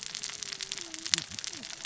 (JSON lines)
{"label": "biophony, cascading saw", "recorder": "SoundTrap 600 or HydroMoth"}